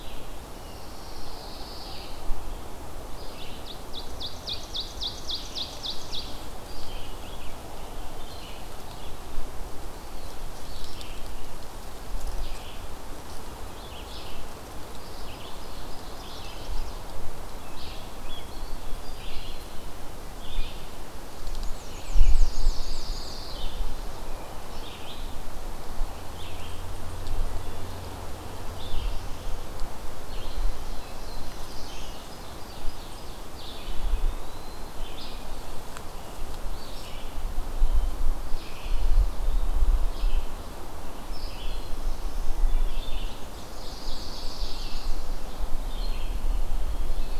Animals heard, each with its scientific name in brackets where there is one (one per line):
Eastern Wood-Pewee (Contopus virens)
Ovenbird (Seiurus aurocapilla)
Red-eyed Vireo (Vireo olivaceus)
Black-throated Blue Warbler (Setophaga caerulescens)
Black-and-white Warbler (Mniotilta varia)
Chestnut-sided Warbler (Setophaga pensylvanica)
Pine Warbler (Setophaga pinus)